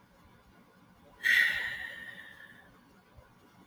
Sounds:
Sigh